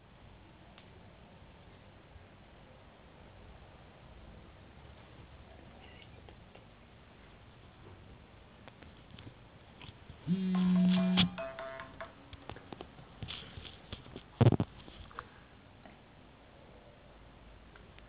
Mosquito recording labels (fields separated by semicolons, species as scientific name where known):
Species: no mosquito; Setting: insect culture